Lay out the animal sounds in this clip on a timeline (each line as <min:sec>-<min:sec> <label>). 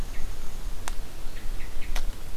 0:00.0-0:00.8 Winter Wren (Troglodytes hiemalis)
0:00.0-0:00.3 Hermit Thrush (Catharus guttatus)
0:01.3-0:01.9 Hermit Thrush (Catharus guttatus)